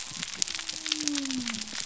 {"label": "biophony", "recorder": "SoundTrap 300"}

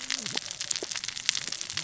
{"label": "biophony, cascading saw", "recorder": "SoundTrap 600 or HydroMoth"}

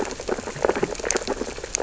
{"label": "biophony, sea urchins (Echinidae)", "recorder": "SoundTrap 600 or HydroMoth"}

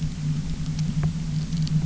{"label": "anthrophony, boat engine", "recorder": "SoundTrap 300"}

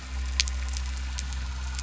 {"label": "anthrophony, boat engine", "recorder": "SoundTrap 300"}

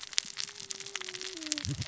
{"label": "biophony, cascading saw", "recorder": "SoundTrap 600 or HydroMoth"}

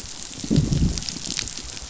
{"label": "biophony, growl", "recorder": "SoundTrap 500"}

